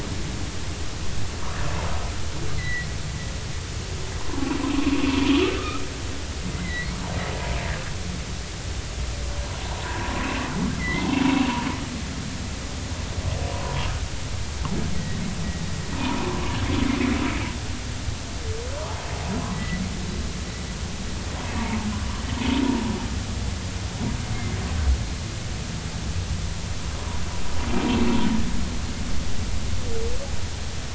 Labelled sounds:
2.6	2.9	humpback whale, 1.9 to 2.1 kHz
6.5	7.0	humpback whale, 1.9 to 2.3 kHz
9.8	10.2	humpback whale, 0.86 to 1.9 kHz
10.8	11.1	humpback whale, 1.9 to 2.2 kHz
13.6	13.8	humpback whale, 0.93 to 1.1 kHz
15.0	15.2	humpback whale, 1.8 to 2.0 kHz
16.0	16.2	humpback whale, 0.86 to 1.1 kHz
19.5	19.8	humpback whale, 1.9 to 2.0 kHz

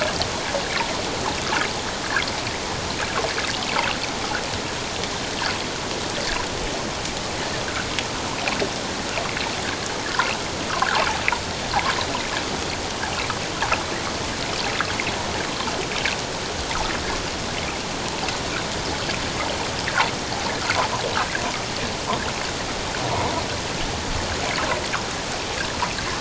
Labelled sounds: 10.0	10.3	water noise, 1.3 to 1.8 kHz

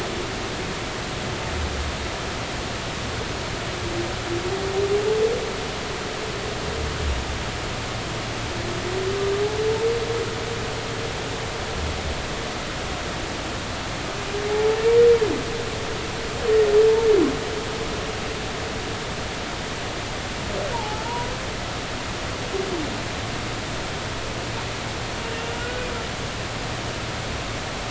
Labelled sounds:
20.7	21.0	humpback whale, 0.80 to 1.0 kHz
25.6	25.9	humpback whale, 1.4 to 1.6 kHz

